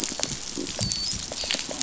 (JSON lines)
{"label": "biophony, dolphin", "recorder": "SoundTrap 500"}
{"label": "biophony", "recorder": "SoundTrap 500"}